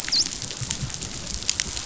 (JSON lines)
{"label": "biophony, dolphin", "recorder": "SoundTrap 500"}